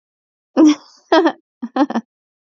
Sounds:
Laughter